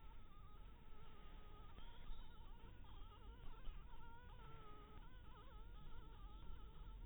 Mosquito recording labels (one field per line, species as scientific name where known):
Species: Anopheles dirus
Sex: female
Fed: blood-fed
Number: one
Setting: cup